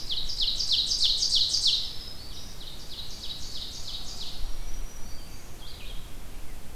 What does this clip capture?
Ovenbird, Red-eyed Vireo, Black-throated Green Warbler